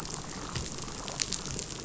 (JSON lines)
{"label": "biophony, damselfish", "recorder": "SoundTrap 500"}